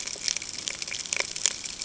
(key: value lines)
label: ambient
recorder: HydroMoth